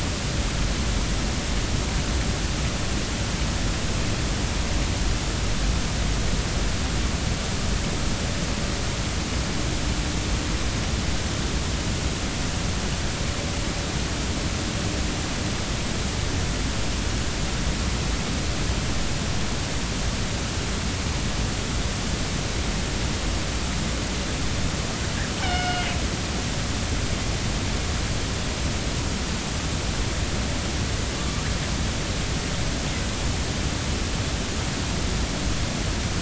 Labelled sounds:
25.4	25.9	killer whale, northern resident, A clan, AB subclan, B01 pod, 1.4 to 5.3 kHz
31.2	31.4	killer whale, northern resident, A clan, AB subclan, 1.1 to 1.2 kHz

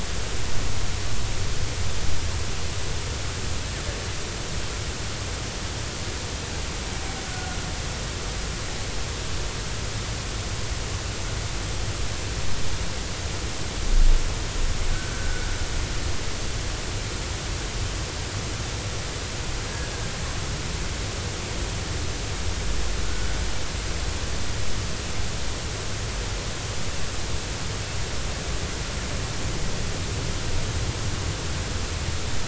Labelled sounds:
14.9	15.5	humpback whale, 1.3 to 1.6 kHz

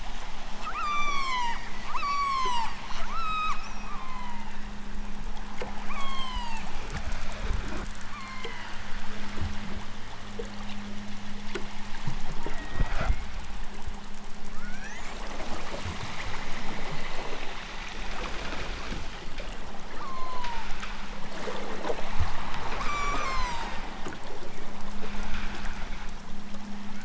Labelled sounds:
0.5	2.8	killer whale, southern Alaska resident, 0.46 to 8.0 kHz
3.0	4.7	killer whale, southern Alaska resident, 0.60 to 8.0 kHz
5.9	6.8	killer whale, southern Alaska resident, 0.37 to 8.0 kHz
8.0	8.8	killer whale, southern Alaska resident, 0.51 to 4.7 kHz
12.4	13.4	killer whale, southern Alaska resident, 1.4 to 2.9 kHz
14.6	15.3	killer whale, southern Alaska resident, 0.37 to 7.4 kHz
19.9	20.8	killer whale, southern Alaska resident, 0.55 to 4.8 kHz
22.8	23.9	killer whale, southern Alaska resident, 0.46 to 8.0 kHz

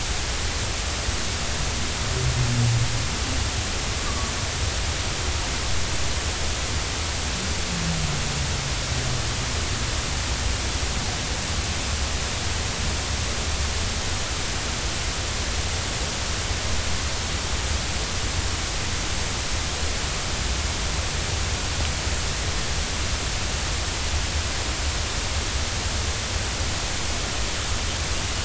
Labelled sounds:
4.1	4.3	humpback whale, 1.1 to 1.2 kHz

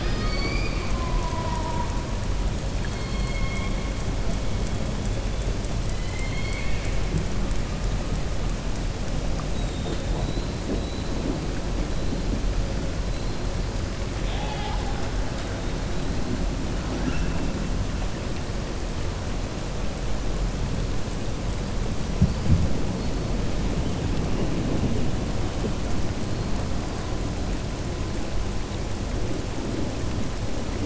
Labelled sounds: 2.9	3.7	killer whale, southern resident, 2.1 to 4.4 kHz
5.9	7.0	killer whale, southern resident, 1.7 to 4.5 kHz
9.5	10.0	killer whale, southern resident, 2.8 to 3.9 kHz
14.1	15.0	killer whale, southern resident, 0.72 to 4.5 kHz

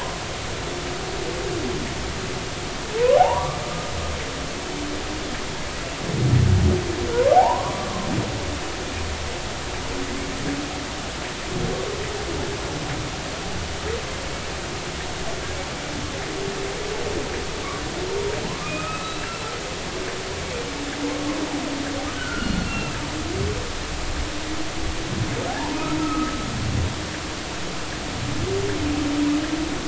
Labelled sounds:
2.9	3.6	humpback whale, 0.80 to 1.2 kHz
7.3	8.1	humpback whale, 0.80 to 1.2 kHz
18.6	19.5	humpback whale, 1.2 to 2.8 kHz
21.1	21.4	humpback whale, 0.96 to 1.1 kHz
22.1	23.0	humpback whale, 1.3 to 2.8 kHz
25.5	26.4	humpback whale, 0.80 to 1.4 kHz

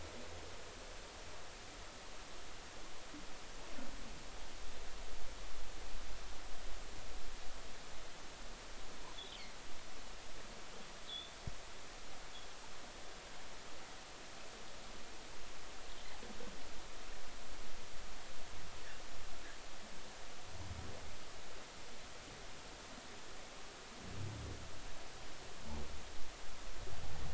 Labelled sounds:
11.0	11.4	humpback whale, 3.3 to 3.6 kHz

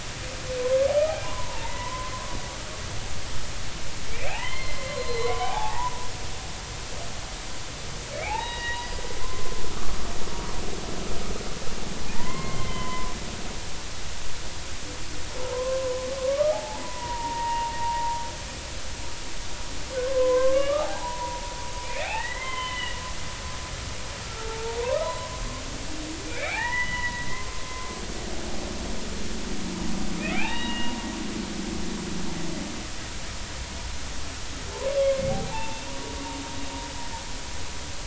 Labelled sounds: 1.2	2.4	humpback whale, 0.86 to 2.1 kHz
4.1	6.1	humpback whale, 0.80 to 4.3 kHz
8.1	8.9	humpback whale, 0.80 to 3.9 kHz
9.2	10.0	humpback whale, 0.99 to 1.3 kHz
12.1	13.1	humpback whale, 0.83 to 3.2 kHz
15.4	18.2	humpback whale, 0.80 to 2.8 kHz
20.0	23.0	humpback whale, 0.80 to 3.2 kHz
24.2	24.7	humpback whale, 0.83 to 1.4 kHz
25.0	25.3	humpback whale, 0.93 to 1.1 kHz
26.3	27.3	humpback whale, 0.80 to 3.0 kHz
30.3	31.0	humpback whale, 0.80 to 3.9 kHz
35.0	35.8	humpback whale, 0.80 to 1.2 kHz

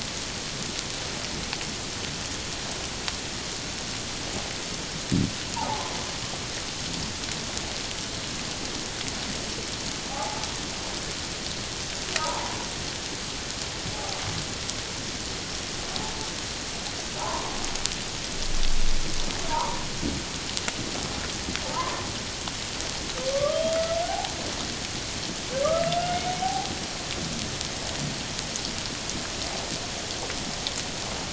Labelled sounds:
5.5	5.8	humpback whale, 0.78 to 1.0 kHz
10.1	10.5	humpback whale, 0.78 to 0.94 kHz
12.2	12.6	humpback whale, 0.81 to 1.1 kHz
17.2	17.5	humpback whale, 0.78 to 1.2 kHz
19.5	19.8	humpback whale, 0.84 to 1.3 kHz
21.7	22.0	humpback whale, 0.84 to 1.2 kHz
23.3	24.3	humpback whale, 0.78 to 3.3 kHz
25.6	26.7	humpback whale, 0.78 to 2.2 kHz

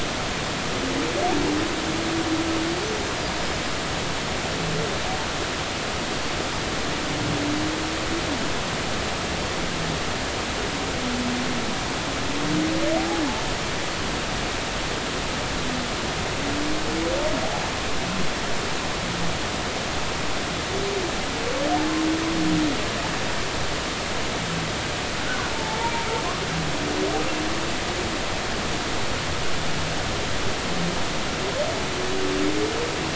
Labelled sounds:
25.5	25.9	humpback whale, 0.80 to 0.99 kHz

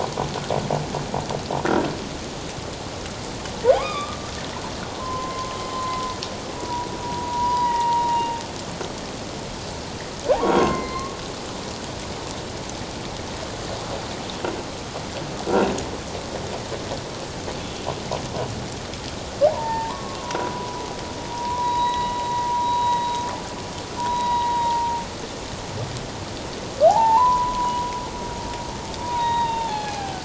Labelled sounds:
3.7	8.4	humpback whale, 0.78 to 5.0 kHz
10.4	11.2	humpback whale, 1.0 to 6.7 kHz
19.5	20.8	humpback whale, 0.78 to 1.9 kHz
21.3	25.0	humpback whale, 0.84 to 3.9 kHz
26.9	27.9	humpback whale, 0.78 to 1.1 kHz
29.0	30.2	humpback whale, 0.78 to 4.3 kHz

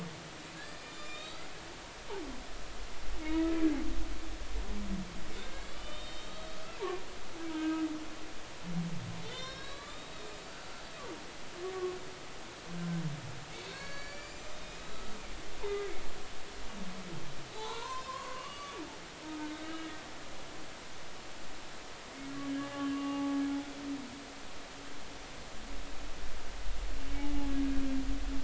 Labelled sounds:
0.6	1.5	humpback whale, 2.3 to 7.8 kHz
5.6	6.6	humpback whale, 1.1 to 7.6 kHz
7.5	7.9	humpback whale, 0.90 to 2.6 kHz
9.2	10.8	humpback whale, 1.1 to 5.5 kHz
11.5	11.7	humpback whale, 4.5 to 4.8 kHz
13.7	15.0	humpback whale, 1.5 to 7.4 kHz
15.6	15.9	humpback whale, 1.9 to 2.1 kHz
17.5	18.7	humpback whale, 0.80 to 4.1 kHz
19.6	20.0	humpback whale, 1.2 to 3.0 kHz
22.5	23.4	humpback whale, 0.80 to 2.9 kHz

